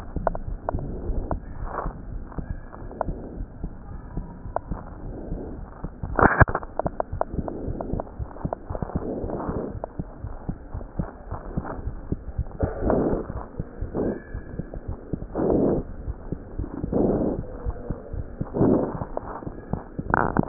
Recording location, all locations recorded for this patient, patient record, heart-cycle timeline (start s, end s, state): aortic valve (AV)
aortic valve (AV)+pulmonary valve (PV)+tricuspid valve (TV)+mitral valve (MV)
#Age: Child
#Sex: Male
#Height: 101.0 cm
#Weight: 16.8 kg
#Pregnancy status: False
#Murmur: Absent
#Murmur locations: nan
#Most audible location: nan
#Systolic murmur timing: nan
#Systolic murmur shape: nan
#Systolic murmur grading: nan
#Systolic murmur pitch: nan
#Systolic murmur quality: nan
#Diastolic murmur timing: nan
#Diastolic murmur shape: nan
#Diastolic murmur grading: nan
#Diastolic murmur pitch: nan
#Diastolic murmur quality: nan
#Outcome: Abnormal
#Campaign: 2015 screening campaign
0.00	10.04	unannotated
10.04	10.21	diastole
10.21	10.32	S1
10.32	10.46	systole
10.46	10.54	S2
10.54	10.72	diastole
10.72	10.86	S1
10.86	10.96	systole
10.96	11.08	S2
11.08	11.30	diastole
11.30	11.40	S1
11.40	11.54	systole
11.54	11.63	S2
11.63	11.85	diastole
11.85	11.93	S1
11.93	12.07	systole
12.07	12.18	S2
12.18	12.34	diastole
12.34	12.48	S1
12.48	12.62	systole
12.62	12.76	S2
12.76	13.76	unannotated
13.76	13.90	S1
13.90	13.96	systole
13.96	14.10	S2
14.10	14.30	diastole
14.30	14.42	S1
14.42	14.55	systole
14.55	14.63	S2
14.63	14.85	diastole
14.85	14.97	S1
14.97	15.08	systole
15.08	15.18	S2
15.18	15.85	unannotated
15.85	16.03	diastole
16.03	16.14	S1
16.14	16.28	systole
16.28	16.38	S2
16.38	16.56	diastole
16.56	16.66	S1
16.66	16.81	systole
16.81	16.89	S2
16.89	20.48	unannotated